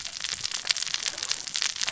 {"label": "biophony, cascading saw", "recorder": "SoundTrap 600 or HydroMoth"}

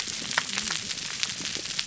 {"label": "biophony, whup", "recorder": "SoundTrap 300"}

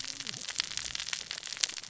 {"label": "biophony, cascading saw", "recorder": "SoundTrap 600 or HydroMoth"}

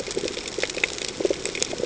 {"label": "ambient", "recorder": "HydroMoth"}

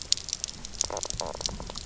{"label": "biophony, knock croak", "recorder": "SoundTrap 300"}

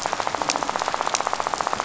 {"label": "biophony, rattle", "recorder": "SoundTrap 500"}
{"label": "biophony", "recorder": "SoundTrap 500"}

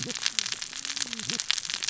{"label": "biophony, cascading saw", "recorder": "SoundTrap 600 or HydroMoth"}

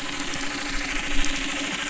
{"label": "anthrophony, boat engine", "recorder": "SoundTrap 300"}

